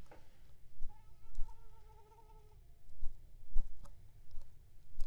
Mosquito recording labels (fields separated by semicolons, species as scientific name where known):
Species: Culex pipiens complex; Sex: female; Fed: unfed; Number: one; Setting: cup